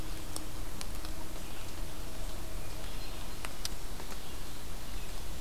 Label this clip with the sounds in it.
Hermit Thrush